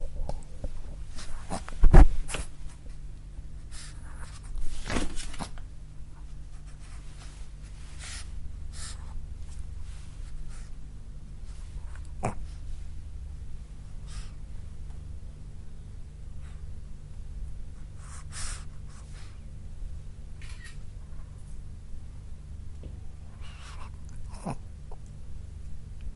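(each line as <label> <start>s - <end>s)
A dog growling quietly in the room. 1.5s - 1.9s
A dog growling quietly in the room. 5.2s - 5.6s
A dog growling quietly in the room. 12.1s - 12.5s
A phone camera quietly taking a picture in the distance. 20.4s - 21.0s
A dog growling quietly in the room. 24.4s - 24.6s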